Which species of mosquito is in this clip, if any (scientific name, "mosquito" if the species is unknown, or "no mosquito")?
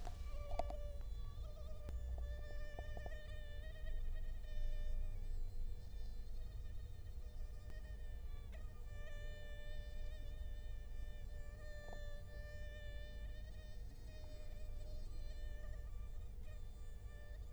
Culex quinquefasciatus